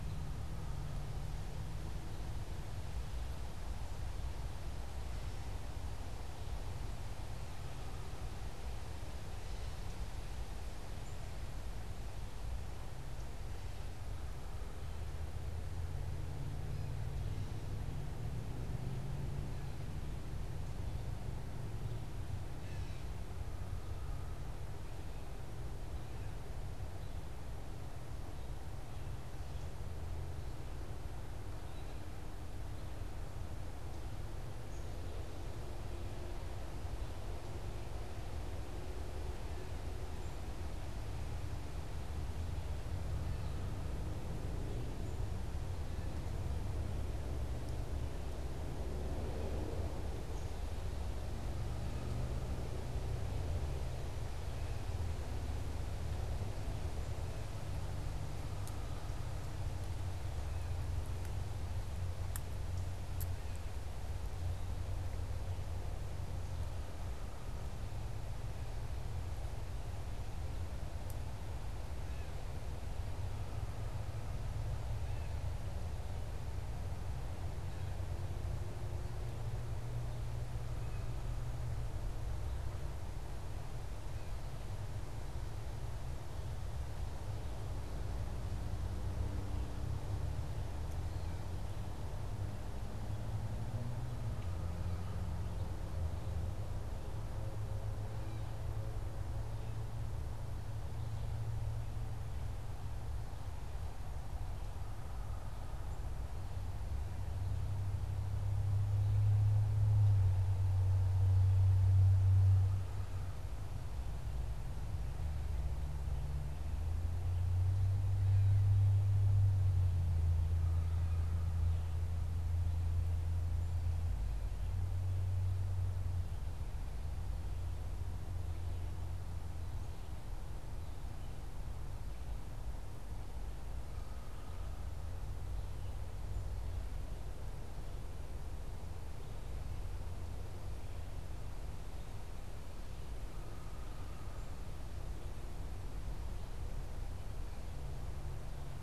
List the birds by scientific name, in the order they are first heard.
Dumetella carolinensis, Poecile atricapillus